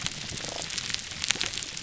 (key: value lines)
label: biophony, damselfish
recorder: SoundTrap 300